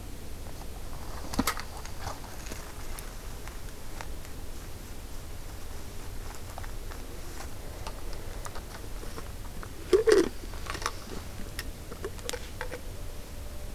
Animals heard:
forest ambience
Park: Hubbard Brook Experimental Forest